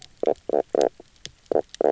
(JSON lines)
{"label": "biophony, knock croak", "recorder": "SoundTrap 300"}